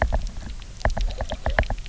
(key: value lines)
label: biophony, knock
recorder: SoundTrap 300